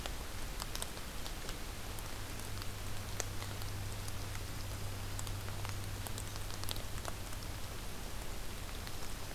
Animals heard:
forest ambience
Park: Acadia National Park